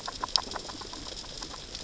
{"label": "biophony, grazing", "recorder": "SoundTrap 600 or HydroMoth"}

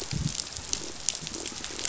{"label": "biophony", "recorder": "SoundTrap 500"}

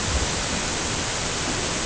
{"label": "ambient", "recorder": "HydroMoth"}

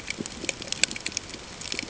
{"label": "ambient", "recorder": "HydroMoth"}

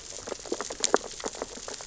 {"label": "biophony, sea urchins (Echinidae)", "recorder": "SoundTrap 600 or HydroMoth"}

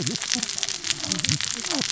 {"label": "biophony, cascading saw", "recorder": "SoundTrap 600 or HydroMoth"}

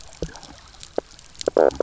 {"label": "biophony, knock croak", "recorder": "SoundTrap 300"}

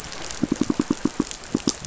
{"label": "biophony, pulse", "recorder": "SoundTrap 500"}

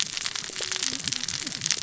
{"label": "biophony, cascading saw", "recorder": "SoundTrap 600 or HydroMoth"}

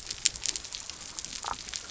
{"label": "biophony", "recorder": "SoundTrap 300"}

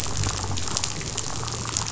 {"label": "biophony, damselfish", "recorder": "SoundTrap 500"}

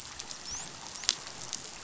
{"label": "biophony, dolphin", "recorder": "SoundTrap 500"}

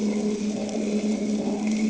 {"label": "anthrophony, boat engine", "recorder": "HydroMoth"}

